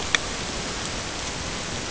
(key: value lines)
label: ambient
recorder: HydroMoth